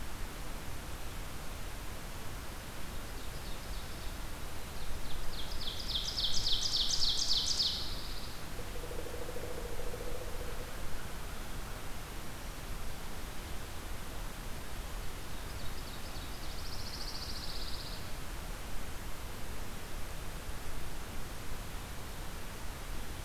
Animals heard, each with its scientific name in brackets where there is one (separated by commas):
Pine Warbler (Setophaga pinus), Pileated Woodpecker (Dryocopus pileatus), Ovenbird (Seiurus aurocapilla)